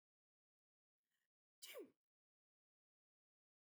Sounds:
Sneeze